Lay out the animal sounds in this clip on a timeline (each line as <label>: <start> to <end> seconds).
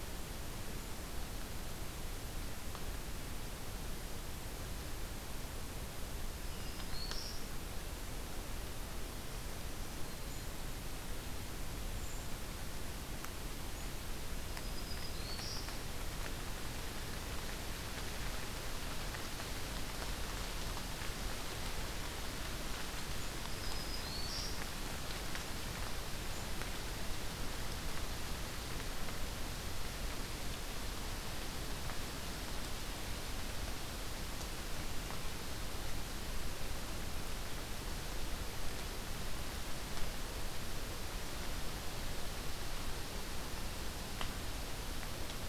Black-throated Green Warbler (Setophaga virens): 6.4 to 7.5 seconds
Brown Creeper (Certhia americana): 12.0 to 12.3 seconds
Black-throated Green Warbler (Setophaga virens): 14.3 to 15.8 seconds
Black-throated Green Warbler (Setophaga virens): 23.2 to 24.7 seconds